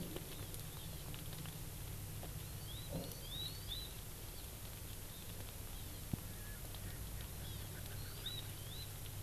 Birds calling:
Hawaii Amakihi (Chlorodrepanis virens)
Erckel's Francolin (Pternistis erckelii)

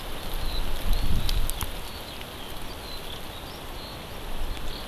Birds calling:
Eurasian Skylark (Alauda arvensis)

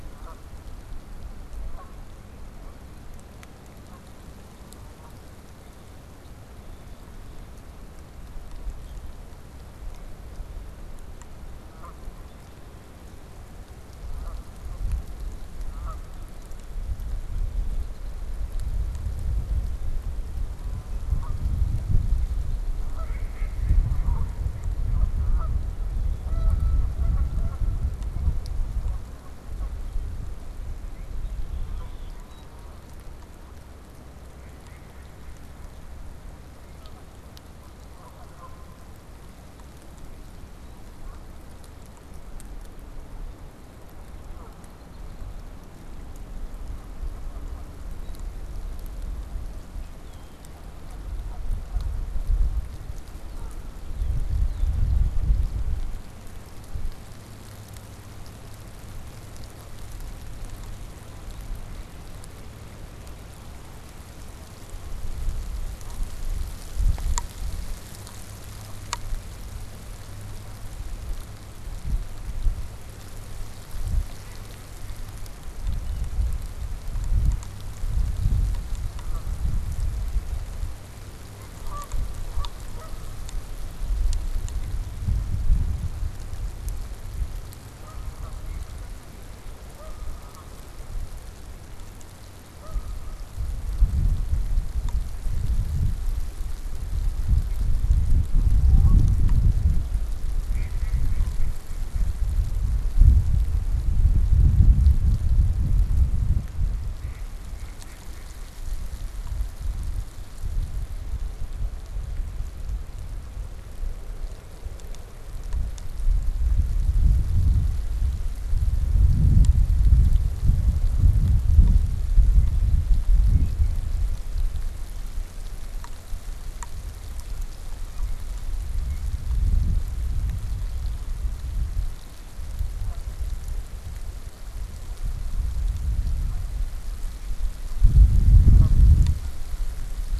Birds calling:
Red-winged Blackbird (Agelaius phoeniceus)
Mallard (Anas platyrhynchos)
Canada Goose (Branta canadensis)

